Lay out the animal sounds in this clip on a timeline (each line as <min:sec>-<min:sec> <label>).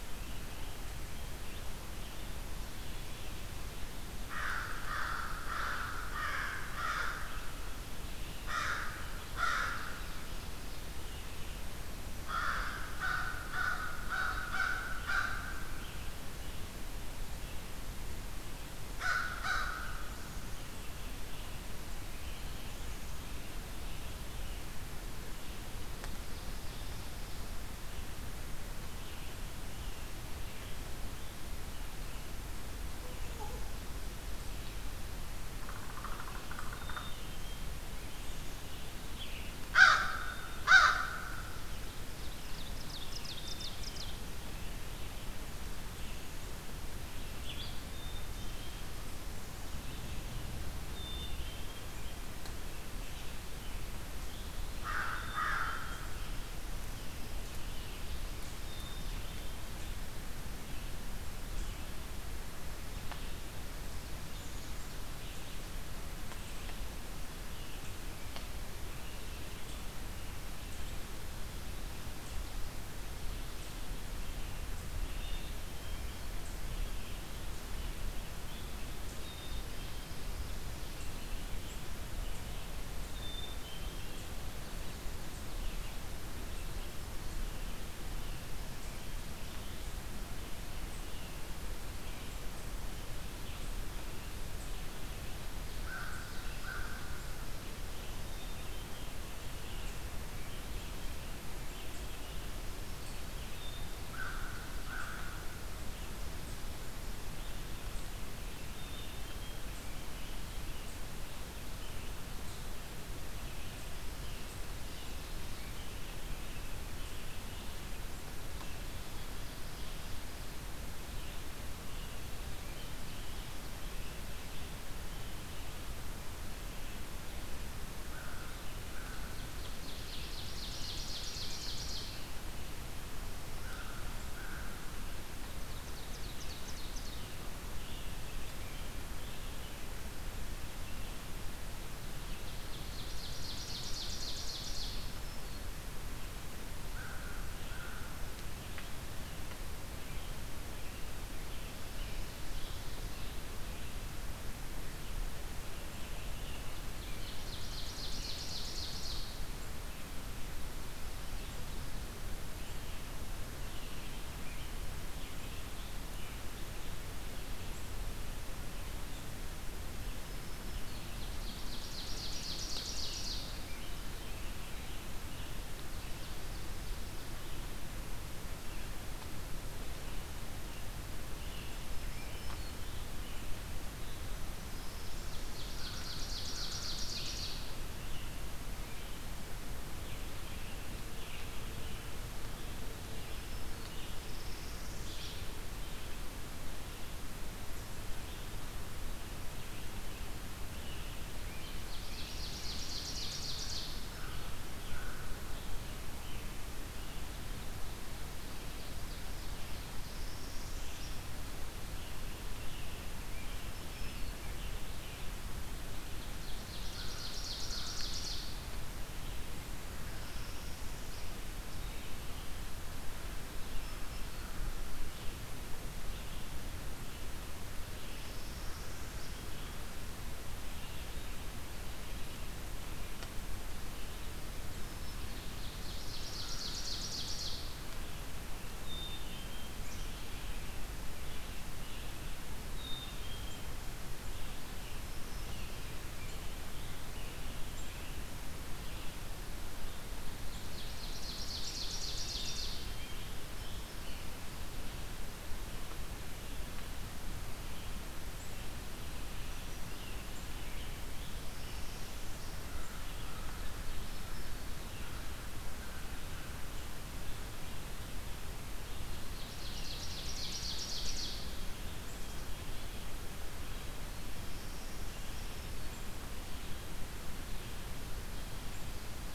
0:04.2-0:07.4 American Crow (Corvus brachyrhynchos)
0:08.4-0:09.9 American Crow (Corvus brachyrhynchos)
0:12.0-0:15.5 American Crow (Corvus brachyrhynchos)
0:18.8-0:20.1 American Crow (Corvus brachyrhynchos)
0:33.0-1:31.6 Red-eyed Vireo (Vireo olivaceus)
0:35.5-0:37.2 Downy Woodpecker (Dryobates pubescens)
0:36.6-0:38.0 Black-capped Chickadee (Poecile atricapillus)
0:39.6-0:41.6 American Crow (Corvus brachyrhynchos)
0:41.2-0:44.4 Ovenbird (Seiurus aurocapilla)
0:43.3-0:44.2 Black-capped Chickadee (Poecile atricapillus)
0:47.9-0:48.9 Black-capped Chickadee (Poecile atricapillus)
0:50.8-0:52.0 Black-capped Chickadee (Poecile atricapillus)
0:54.6-0:56.1 American Crow (Corvus brachyrhynchos)
0:55.1-0:56.2 Black-capped Chickadee (Poecile atricapillus)
0:58.4-1:00.3 Black-capped Chickadee (Poecile atricapillus)
1:14.9-1:16.4 Black-capped Chickadee (Poecile atricapillus)
1:19.2-1:20.3 Black-capped Chickadee (Poecile atricapillus)
1:23.1-1:24.3 Black-capped Chickadee (Poecile atricapillus)
1:31.9-2:30.4 Red-eyed Vireo (Vireo olivaceus)
1:35.7-1:37.4 American Crow (Corvus brachyrhynchos)
1:38.0-1:39.6 Black-capped Chickadee (Poecile atricapillus)
1:44.0-1:45.5 American Crow (Corvus brachyrhynchos)
1:48.5-1:49.7 Black-capped Chickadee (Poecile atricapillus)
2:07.8-2:09.8 American Crow (Corvus brachyrhynchos)
2:09.0-2:12.3 Ovenbird (Seiurus aurocapilla)
2:12.7-2:15.4 American Crow (Corvus brachyrhynchos)
2:15.1-2:17.3 Ovenbird (Seiurus aurocapilla)
2:22.1-2:25.2 Ovenbird (Seiurus aurocapilla)
2:24.8-2:25.8 Black-throated Green Warbler (Setophaga virens)
2:26.5-2:28.5 American Crow (Corvus brachyrhynchos)
2:30.7-3:29.6 Red-eyed Vireo (Vireo olivaceus)
2:31.6-2:33.4 Ovenbird (Seiurus aurocapilla)
2:36.6-2:39.5 Ovenbird (Seiurus aurocapilla)
2:44.4-2:46.7 Scarlet Tanager (Piranga olivacea)
2:50.0-2:51.3 Black-throated Green Warbler (Setophaga virens)
2:50.5-2:53.6 Ovenbird (Seiurus aurocapilla)
2:55.6-2:57.4 Ovenbird (Seiurus aurocapilla)
3:01.5-3:02.8 Black-throated Green Warbler (Setophaga virens)
3:05.0-3:07.9 Ovenbird (Seiurus aurocapilla)
3:14.0-3:15.4 Northern Parula (Setophaga americana)
3:21.4-3:24.0 Ovenbird (Seiurus aurocapilla)
3:24.0-3:25.5 American Crow (Corvus brachyrhynchos)
3:29.9-3:31.3 Northern Parula (Setophaga americana)
3:30.6-4:28.4 Red-eyed Vireo (Vireo olivaceus)
3:33.6-3:34.5 Black-throated Green Warbler (Setophaga virens)
3:36.2-3:38.6 Ovenbird (Seiurus aurocapilla)
3:36.9-3:38.1 American Crow (Corvus brachyrhynchos)
3:40.0-3:41.4 Northern Parula (Setophaga americana)
3:43.5-3:44.7 Black-throated Green Warbler (Setophaga virens)
3:48.1-3:49.4 Northern Parula (Setophaga americana)
3:55.0-3:57.7 Ovenbird (Seiurus aurocapilla)
3:58.7-3:59.9 Black-capped Chickadee (Poecile atricapillus)
4:02.7-4:03.8 Black-capped Chickadee (Poecile atricapillus)
4:10.2-4:12.9 Ovenbird (Seiurus aurocapilla)
4:21.4-4:22.7 Northern Parula (Setophaga americana)
4:22.6-4:26.6 American Crow (Corvus brachyrhynchos)
4:28.7-4:38.0 Red-eyed Vireo (Vireo olivaceus)
4:28.8-4:31.7 Ovenbird (Seiurus aurocapilla)
4:32.1-4:33.0 Black-capped Chickadee (Poecile atricapillus)
4:34.3-4:35.5 Northern Parula (Setophaga americana)